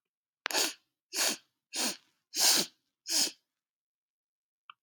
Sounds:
Sniff